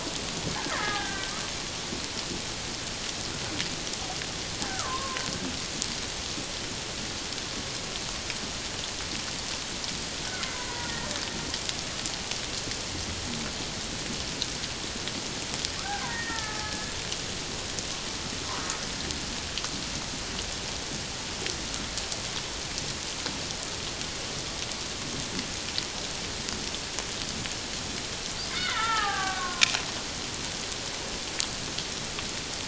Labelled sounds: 0.7	1.3	killer whale, Bigg's (transient), 1.2 to 1.9 kHz
4.6	5.2	killer whale, Bigg's (transient), 0.94 to 1.8 kHz
10.3	11.1	killer whale, Bigg's (transient), 0.91 to 2.2 kHz
15.8	16.9	killer whale, Bigg's (transient), 0.78 to 2.0 kHz
28.5	29.7	killer whale, Bigg's (transient), 0.78 to 3.8 kHz

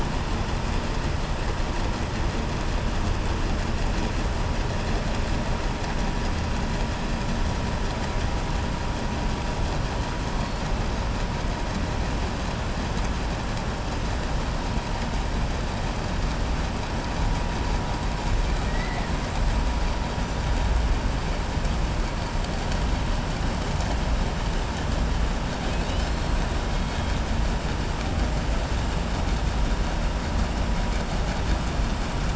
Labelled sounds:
18.6	19.1	killer whale, southern resident, 1.3 to 2.4 kHz

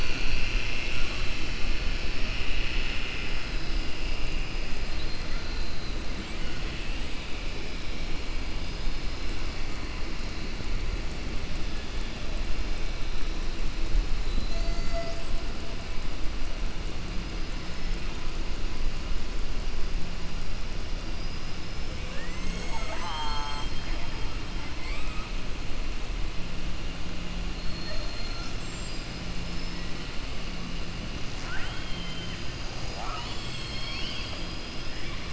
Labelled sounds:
21.0	21.9	killer whale, southern resident, 4.7 to 5.3 kHz
31.3	32.4	killer whale, southern resident, 0.81 to 3.3 kHz

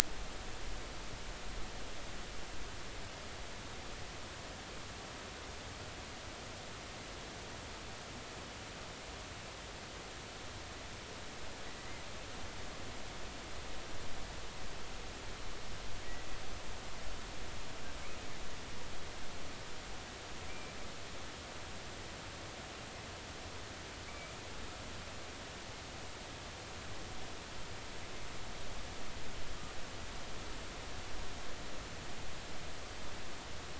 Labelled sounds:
20.5	20.8	killer whale, offshore, 2.2 to 2.4 kHz
24.1	24.3	killer whale, offshore, 2.2 to 2.4 kHz

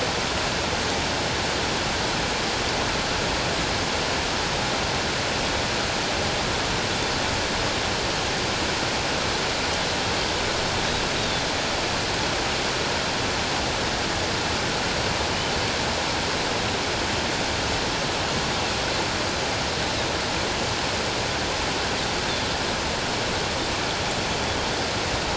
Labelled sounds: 11.1	11.4	Pacific white-sided dolphin, 3.4 to 3.9 kHz

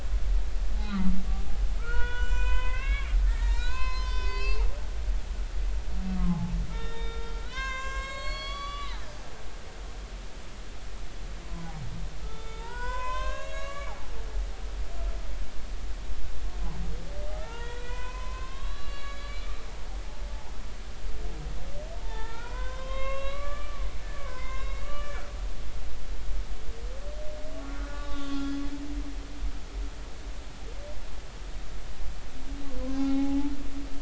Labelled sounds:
0.8	4.7	humpback whale, 0.90 to 7.6 kHz
6.2	9.1	humpback whale, 0.80 to 7.7 kHz
11.4	13.9	humpback whale, 0.80 to 8.0 kHz
17.3	20.2	humpback whale, 0.86 to 4.6 kHz
21.9	25.2	humpback whale, 0.83 to 4.0 kHz
27.6	28.6	humpback whale, 1.1 to 3.8 kHz
32.8	33.5	humpback whale, 0.80 to 1.1 kHz

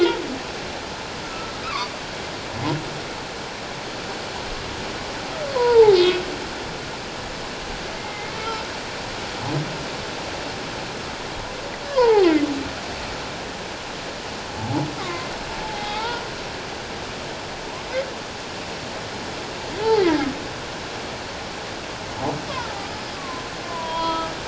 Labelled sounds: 1.2	1.9	humpback whale, 0.94 to 1.4 kHz
5.6	6.2	humpback whale, 0.78 to 2.6 kHz
8.0	8.6	humpback whale, 1.3 to 2.2 kHz
11.9	12.3	humpback whale, 0.78 to 2.2 kHz
14.6	15.3	humpback whale, 0.78 to 2.2 kHz
15.6	16.3	humpback whale, 0.78 to 3.6 kHz
19.8	20.1	humpback whale, 0.78 to 0.94 kHz
22.9	24.3	humpback whale, 0.91 to 5.2 kHz

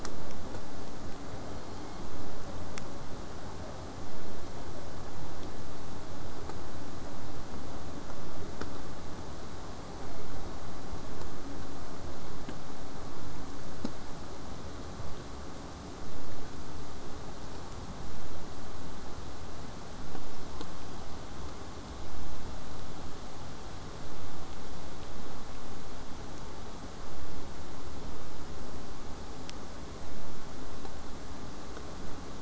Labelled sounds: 1.1	2.1	killer whale, southern resident, J pod, 1.9 to 4.6 kHz
5.0	10.0	vessel noise, 0 to 8.0 kHz

